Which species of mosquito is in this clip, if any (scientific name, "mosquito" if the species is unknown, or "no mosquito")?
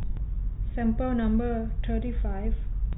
no mosquito